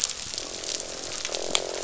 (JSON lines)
{"label": "biophony, croak", "recorder": "SoundTrap 500"}